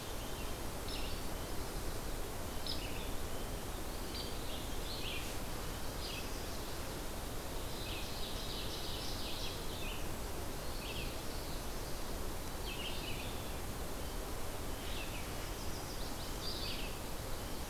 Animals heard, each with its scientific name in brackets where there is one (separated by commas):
Red-eyed Vireo (Vireo olivaceus), Chestnut-sided Warbler (Setophaga pensylvanica), Ovenbird (Seiurus aurocapilla)